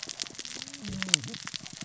{"label": "biophony, cascading saw", "recorder": "SoundTrap 600 or HydroMoth"}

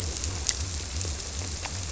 {"label": "biophony", "recorder": "SoundTrap 300"}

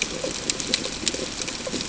{"label": "ambient", "recorder": "HydroMoth"}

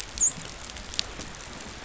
{"label": "biophony, dolphin", "recorder": "SoundTrap 500"}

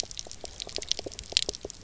{"label": "biophony, pulse", "recorder": "SoundTrap 300"}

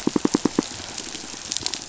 {"label": "biophony, pulse", "recorder": "SoundTrap 500"}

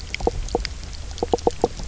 {"label": "biophony, knock croak", "recorder": "SoundTrap 300"}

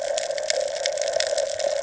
{"label": "ambient", "recorder": "HydroMoth"}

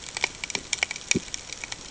{"label": "ambient", "recorder": "HydroMoth"}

